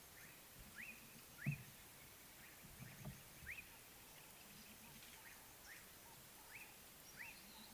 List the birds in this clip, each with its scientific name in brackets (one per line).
Slate-colored Boubou (Laniarius funebris)